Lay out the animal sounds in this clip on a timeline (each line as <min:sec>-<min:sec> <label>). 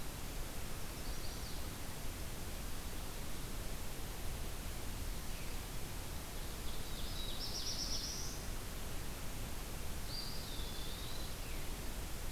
0:00.5-0:01.6 Chestnut-sided Warbler (Setophaga pensylvanica)
0:06.3-0:08.1 Ovenbird (Seiurus aurocapilla)
0:06.8-0:08.6 Black-throated Blue Warbler (Setophaga caerulescens)
0:09.8-0:11.4 Eastern Wood-Pewee (Contopus virens)
0:10.0-0:11.5 Ovenbird (Seiurus aurocapilla)